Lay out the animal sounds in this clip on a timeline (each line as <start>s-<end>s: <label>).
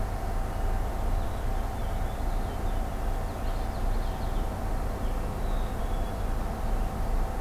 0.9s-4.4s: Purple Finch (Haemorhous purpureus)
3.2s-4.3s: Common Yellowthroat (Geothlypis trichas)
5.2s-6.3s: Black-capped Chickadee (Poecile atricapillus)